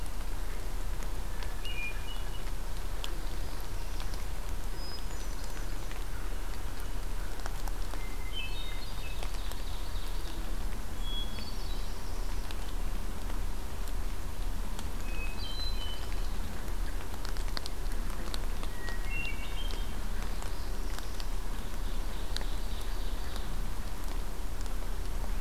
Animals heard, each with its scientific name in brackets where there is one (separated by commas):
Northern Parula (Setophaga americana), Hermit Thrush (Catharus guttatus), Ovenbird (Seiurus aurocapilla)